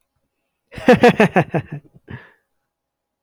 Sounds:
Laughter